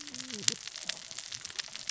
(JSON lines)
{"label": "biophony, cascading saw", "recorder": "SoundTrap 600 or HydroMoth"}